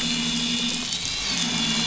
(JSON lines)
{"label": "anthrophony, boat engine", "recorder": "SoundTrap 500"}